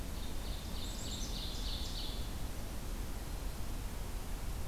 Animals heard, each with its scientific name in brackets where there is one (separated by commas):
Black-capped Chickadee (Poecile atricapillus), Ovenbird (Seiurus aurocapilla)